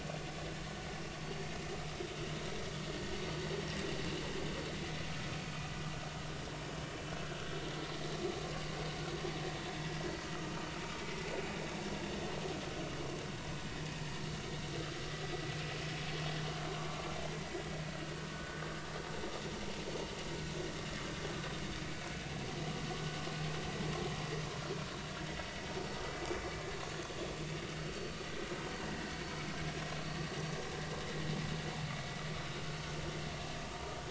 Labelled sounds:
18.3	18.6	vessel noise, 1.4 to 1.6 kHz
21.8	22.1	vessel noise, 2.2 to 2.4 kHz
30.0	30.3	vessel noise, 1.1 to 1.2 kHz

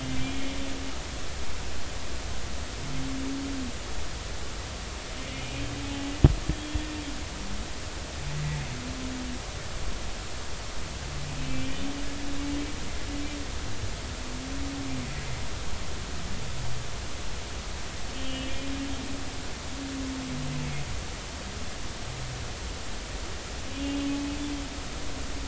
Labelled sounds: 6.5	6.9	humpback whale, 3.2 to 3.4 kHz
11.4	11.9	humpback whale, 2.3 to 3.1 kHz
18.1	18.6	humpback whale, 2.8 to 3.3 kHz
23.8	24.1	humpback whale, 2.8 to 2.9 kHz

